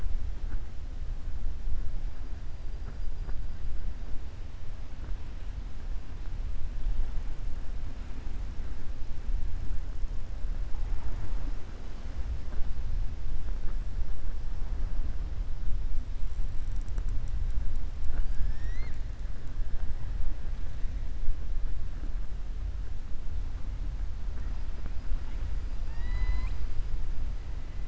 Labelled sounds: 25.8	26.6	killer whale, southern resident, 0.09 to 7.6 kHz

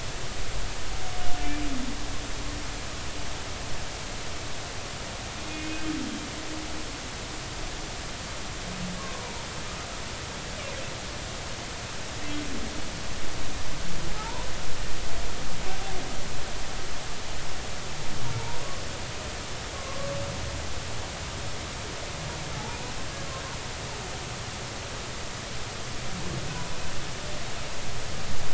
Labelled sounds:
5.4	5.8	humpback whale, 2.1 to 2.6 kHz
9.1	9.5	humpback whale, 0.90 to 1.1 kHz
14.2	14.5	humpback whale, 0.80 to 1.1 kHz
18.4	18.6	humpback whale, 0.86 to 1.0 kHz
19.7	20.1	humpback whale, 1.0 to 1.2 kHz

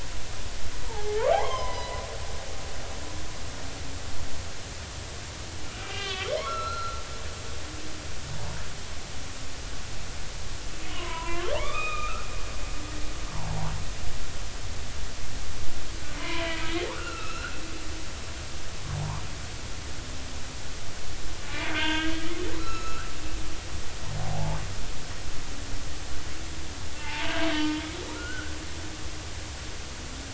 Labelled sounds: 0.9	2.0	humpback whale, 0.80 to 3.3 kHz
5.7	7.0	humpback whale, 1.1 to 4.2 kHz
10.9	12.3	humpback whale, 0.93 to 3.8 kHz
13.3	13.7	humpback whale, 0.80 to 1.1 kHz
16.1	17.6	humpback whale, 0.90 to 3.1 kHz
19.0	19.2	humpback whale, 0.80 to 1.2 kHz
21.6	22.1	humpback whale, 0.86 to 3.5 kHz
22.6	23.1	humpback whale, 1.2 to 6.8 kHz
24.2	24.6	humpback whale, 0.80 to 1.1 kHz
27.0	28.5	humpback whale, 0.83 to 3.5 kHz

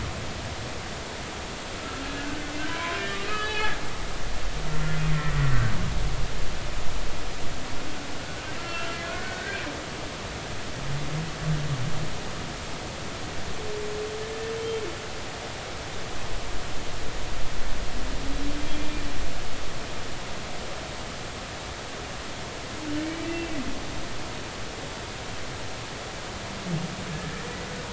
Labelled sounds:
1.8	2.3	humpback whale, 1.3 to 1.7 kHz
3.3	4.0	humpback whale, 0.93 to 4.7 kHz
4.7	5.5	humpback whale, 1.3 to 2.0 kHz
8.6	9.6	humpback whale, 1.3 to 1.7 kHz
18.7	19.0	humpback whale, 2.3 to 2.4 kHz
23.2	23.5	humpback whale, 2.6 to 2.8 kHz

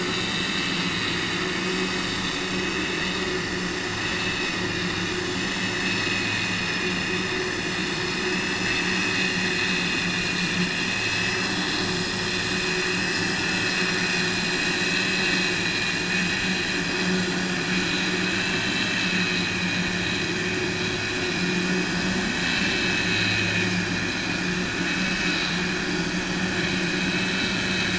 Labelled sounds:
0.1	1.4	vessel noise, 2.1 to 4.6 kHz
8.6	9.0	vessel noise, 1.2 to 3.6 kHz
27.1	27.9	vessel noise, 1.7 to 4.6 kHz

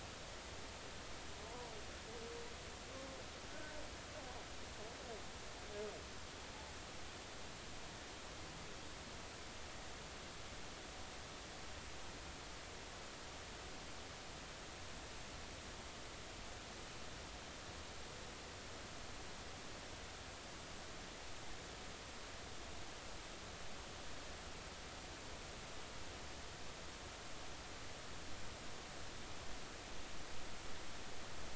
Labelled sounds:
1.5	1.7	humpback whale, 0.86 to 1.0 kHz

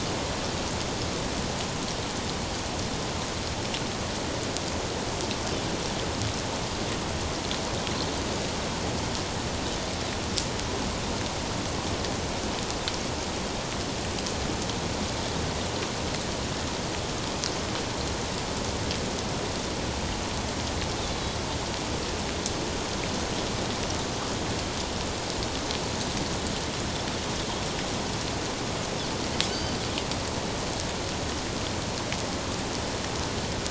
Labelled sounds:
29.5	29.8	Pacific white-sided dolphin, 2.9 to 4.8 kHz

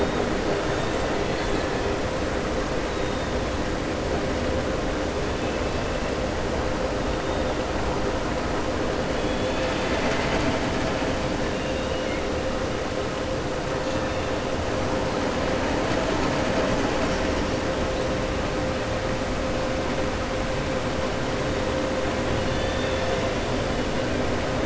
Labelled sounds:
11.5	12.2	killer whale, southern resident, 2.1 to 3.8 kHz
22.3	23.2	killer whale, southern resident, 1.8 to 4.5 kHz

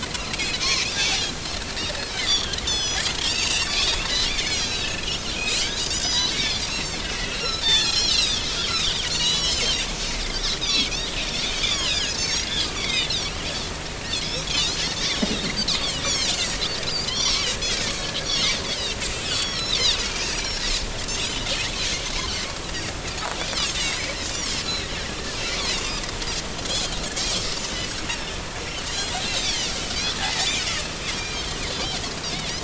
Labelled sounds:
0.4	1.2	Pacific white-sided dolphin, 1.7 to 4.3 kHz
2.1	9.9	Pacific white-sided dolphin, 1.5 to 8.0 kHz
10.6	10.9	Pacific white-sided dolphin, 2.1 to 5.2 kHz
11.5	13.4	Pacific white-sided dolphin, 1.5 to 7.1 kHz
14.2	14.8	Pacific white-sided dolphin, 2.3 to 5.8 kHz
15.7	16.6	Pacific white-sided dolphin, 2.5 to 7.6 kHz
17.1	19.8	Pacific white-sided dolphin, 1.6 to 6.0 kHz
20.3	21.5	Pacific white-sided dolphin, 4.0 to 7.1 kHz
23.7	24.9	Pacific white-sided dolphin, 2.5 to 6.1 kHz
25.6	25.8	Pacific white-sided dolphin, 3.5 to 4.7 kHz
27.5	27.8	Pacific white-sided dolphin, 5.9 to 6.3 kHz
28.1	30.8	Pacific white-sided dolphin, 1.7 to 6.1 kHz
31.1	32.5	Pacific white-sided dolphin, 2.3 to 5.7 kHz

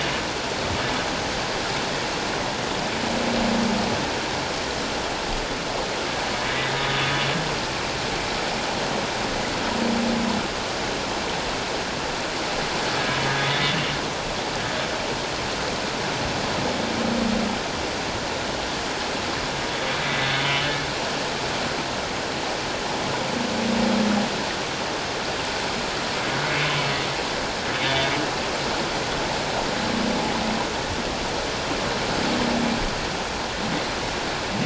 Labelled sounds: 27.7	28.1	humpback whale, 3.3 to 3.6 kHz

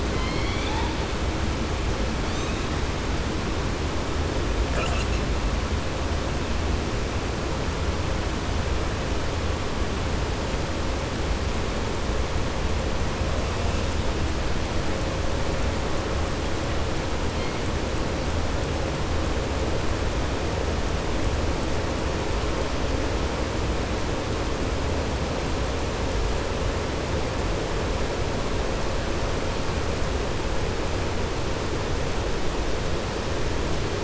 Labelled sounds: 4.6	5.2	killer whale, southern resident, 0.52 to 4.1 kHz

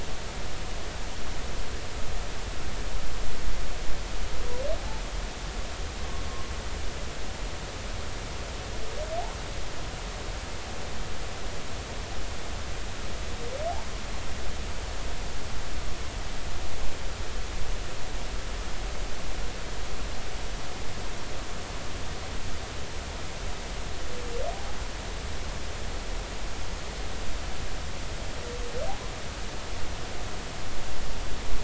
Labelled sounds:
24.5	24.8	humpback whale, 0.80 to 0.99 kHz

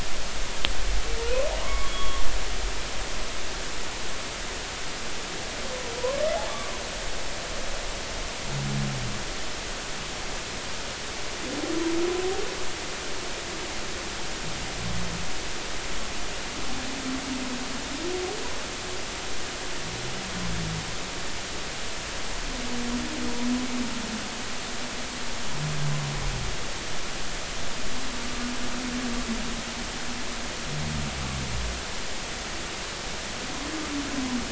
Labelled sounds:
1.6	2.2	humpback whale, 0.93 to 3.4 kHz
6.0	6.7	humpback whale, 0.93 to 1.2 kHz

